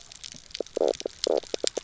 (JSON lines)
{"label": "biophony, knock croak", "recorder": "SoundTrap 300"}